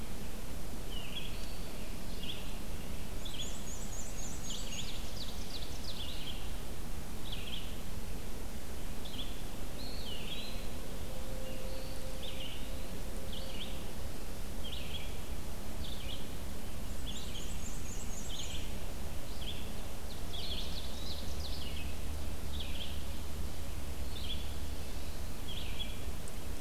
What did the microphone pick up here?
Red-eyed Vireo, Black-and-white Warbler, Ovenbird, Eastern Wood-Pewee